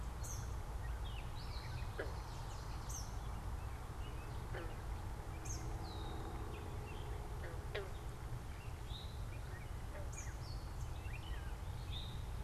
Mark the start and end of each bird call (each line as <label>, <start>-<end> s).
Eastern Kingbird (Tyrannus tyrannus), 0.0-10.9 s
Red-winged Blackbird (Agelaius phoeniceus), 5.6-6.5 s
Eastern Towhee (Pipilo erythrophthalmus), 8.7-12.4 s